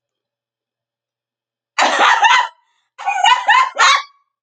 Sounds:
Laughter